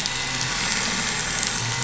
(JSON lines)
{"label": "anthrophony, boat engine", "recorder": "SoundTrap 500"}